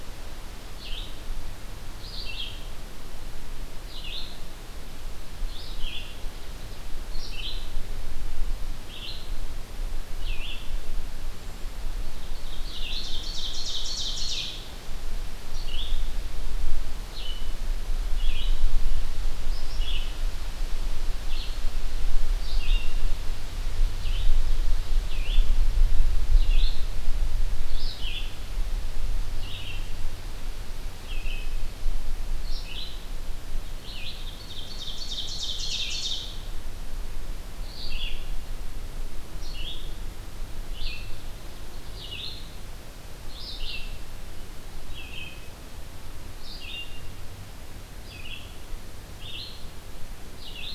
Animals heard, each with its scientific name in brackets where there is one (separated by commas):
Ovenbird (Seiurus aurocapilla), Red-eyed Vireo (Vireo olivaceus)